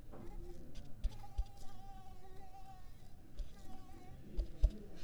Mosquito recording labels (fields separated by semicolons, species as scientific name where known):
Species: Mansonia africanus; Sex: female; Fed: unfed; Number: one; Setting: cup